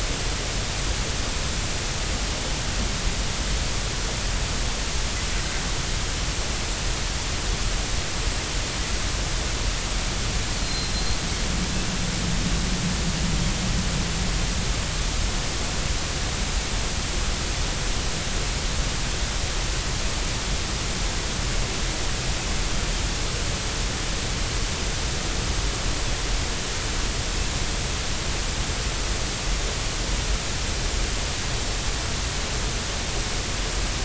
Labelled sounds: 10.6	10.9	Pacific white-sided dolphin, 4.1 to 4.3 kHz

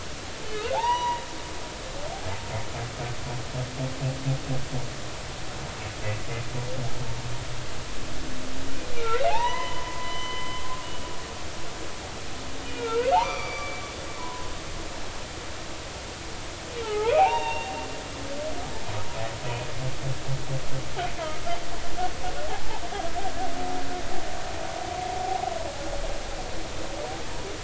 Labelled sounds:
0.5	1.2	humpback whale, 0.80 to 5.9 kHz
9.0	10.6	humpback whale, 0.80 to 3.1 kHz
12.6	13.8	humpback whale, 0.86 to 4.7 kHz
14.2	14.5	humpback whale, 0.93 to 1.1 kHz
16.8	17.7	humpback whale, 0.80 to 3.8 kHz
22.5	22.8	humpback whale, 0.80 to 0.99 kHz

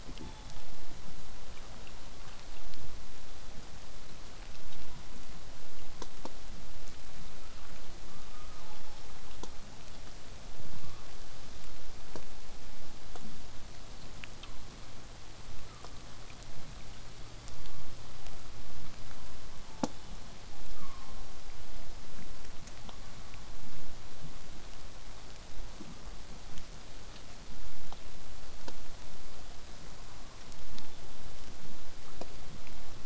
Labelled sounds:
0.2	0.8	killer whale, southern resident, 0.68 to 5.6 kHz
7.4	7.7	killer whale, southern resident, 1.0 to 1.4 kHz
10.8	11.1	killer whale, southern resident, 0.89 to 1.3 kHz
15.6	16.0	killer whale, southern resident, 0.96 to 1.4 kHz
19.6	20.3	killer whale, southern resident, 2.8 to 5.4 kHz
20.6	21.2	killer whale, southern resident, 0.91 to 3.5 kHz
30.7	31.0	killer whale, southern resident, 0.70 to 3.8 kHz

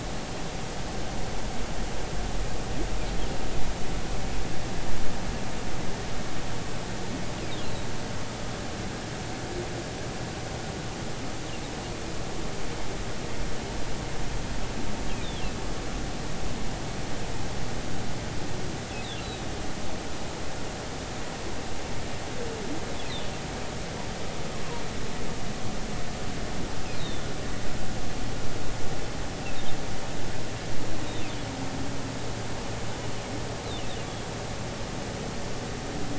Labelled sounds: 19.2	19.5	humpback whale, 3.7 to 4.1 kHz
27.0	27.2	humpback whale, 3.5 to 3.9 kHz

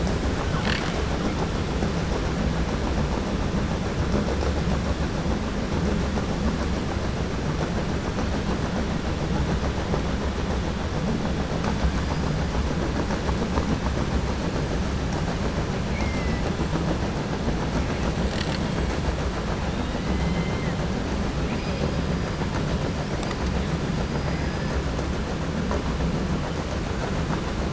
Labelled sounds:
15.8	16.4	killer whale, 2.0 to 2.8 kHz
20.1	20.7	killer whale, 1.8 to 3.1 kHz

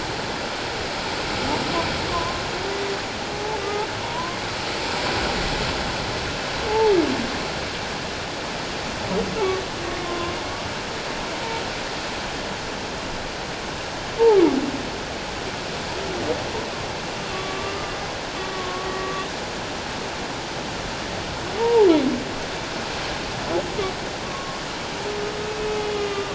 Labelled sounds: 2.1	2.4	humpback whale, 0.97 to 1.2 kHz
3.6	4.4	humpback whale, 0.91 to 1.3 kHz
6.7	6.9	humpback whale, 0.81 to 0.94 kHz
10.0	10.4	humpback whale, 1.0 to 1.1 kHz
17.3	17.9	humpback whale, 1.1 to 1.2 kHz
18.5	19.2	humpback whale, 1.0 to 1.9 kHz
21.6	21.9	humpback whale, 0.81 to 1.0 kHz
24.3	24.6	humpback whale, 1.0 to 1.2 kHz
25.8	26.3	humpback whale, 1.1 to 3.7 kHz

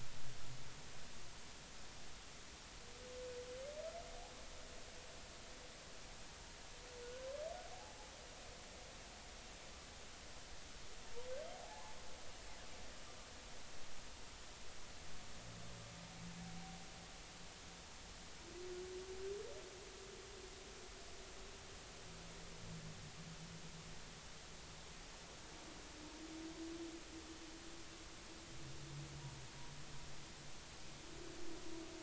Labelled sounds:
7.0	8.1	humpback whale, 0.80 to 1.6 kHz
11.5	12.0	humpback whale, 0.80 to 1.1 kHz

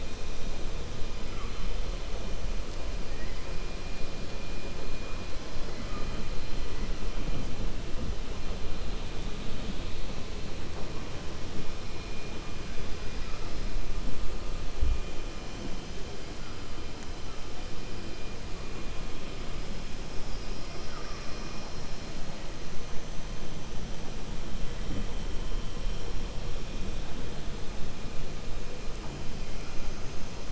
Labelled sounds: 20.8	21.5	killer whale, 0.53 to 2.6 kHz

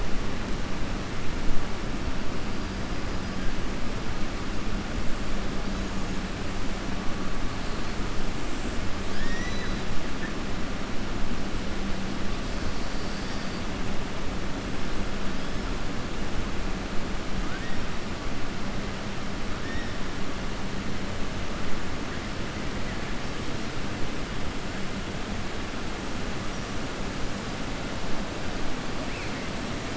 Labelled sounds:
9.0	9.8	killer whale, southern resident, 1.6 to 6.6 kHz
17.4	17.8	killer whale, southern resident, 1.2 to 2.3 kHz

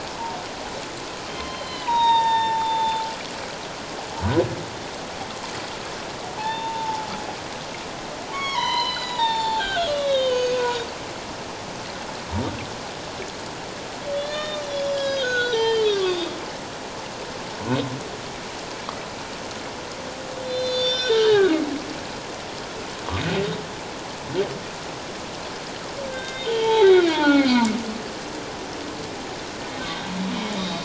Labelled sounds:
1.3	3.0	humpback whale, 0.81 to 5.8 kHz
6.4	7.1	humpback whale, 0.81 to 3.7 kHz
8.3	10.9	humpback whale, 0.78 to 6.6 kHz
14.1	16.3	humpback whale, 0.84 to 6.7 kHz
20.4	21.5	humpback whale, 1.4 to 6.7 kHz
26.1	27.7	humpback whale, 0.78 to 4.4 kHz
29.8	30.8	humpback whale, 3.5 to 3.9 kHz

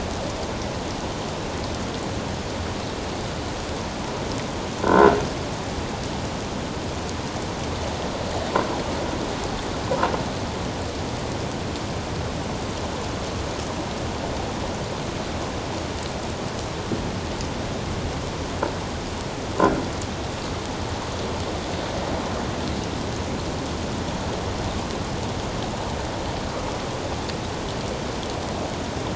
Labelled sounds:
4.8	5.2	croaking sound likely from a nearby submerged object, 1.3 to 1.5 kHz

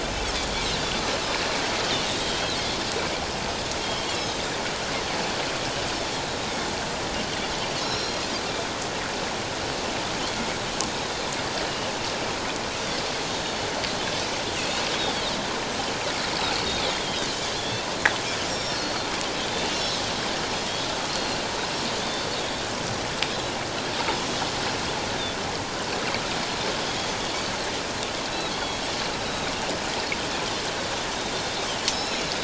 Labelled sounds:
2.0	2.3	Pacific white-sided dolphin, 3.4 to 4.0 kHz
3.8	4.4	Pacific white-sided dolphin, 3.0 to 4.0 kHz
6.0	6.2	Pacific white-sided dolphin, 3.2 to 3.6 kHz
7.8	8.2	Pacific white-sided dolphin, 3.8 to 5.7 kHz
13.3	13.6	Pacific white-sided dolphin, 3.6 to 3.8 kHz
14.6	14.9	Pacific white-sided dolphin, 4.2 to 4.4 kHz
16.6	17.8	Pacific white-sided dolphin, 3.1 to 3.8 kHz
18.5	19.1	Pacific white-sided dolphin, 4.1 to 7.5 kHz
19.7	20.0	Pacific white-sided dolphin, 3.9 to 5.7 kHz
21.1	21.4	Pacific white-sided dolphin, 4.1 to 4.3 kHz
22.0	22.3	Pacific white-sided dolphin, 3.4 to 3.6 kHz
29.2	29.5	Pacific white-sided dolphin, 3.6 to 4.0 kHz
31.9	32.2	Pacific white-sided dolphin, 3.8 to 5.4 kHz

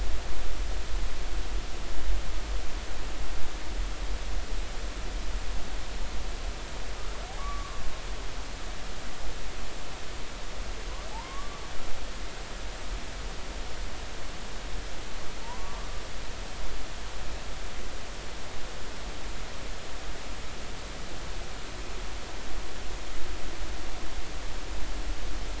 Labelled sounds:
7.4	7.8	humpback whale, 1.0 to 1.2 kHz
11.1	11.6	humpback whale, 0.80 to 1.2 kHz
15.4	15.9	humpback whale, 0.86 to 1.2 kHz

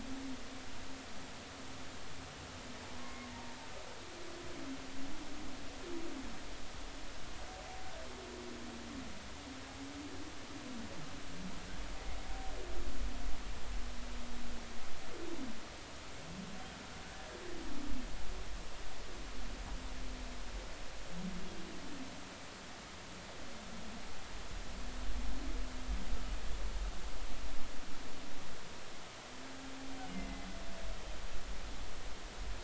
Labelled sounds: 3.0	3.6	humpback whale, 0.86 to 2.2 kHz
30.1	30.5	humpback whale, 2.0 to 2.2 kHz

